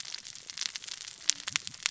{"label": "biophony, cascading saw", "recorder": "SoundTrap 600 or HydroMoth"}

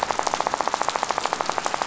{"label": "biophony, rattle", "recorder": "SoundTrap 500"}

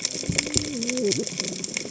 {"label": "biophony, cascading saw", "recorder": "HydroMoth"}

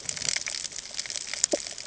{"label": "ambient", "recorder": "HydroMoth"}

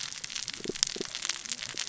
{"label": "biophony, cascading saw", "recorder": "SoundTrap 600 or HydroMoth"}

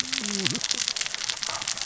{"label": "biophony, cascading saw", "recorder": "SoundTrap 600 or HydroMoth"}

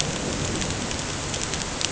{"label": "ambient", "recorder": "HydroMoth"}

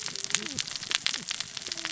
{"label": "biophony, cascading saw", "recorder": "SoundTrap 600 or HydroMoth"}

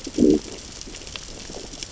{"label": "biophony, growl", "recorder": "SoundTrap 600 or HydroMoth"}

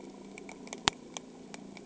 {"label": "anthrophony, boat engine", "recorder": "HydroMoth"}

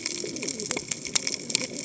{"label": "biophony, cascading saw", "recorder": "HydroMoth"}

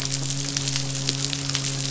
{"label": "biophony, midshipman", "recorder": "SoundTrap 500"}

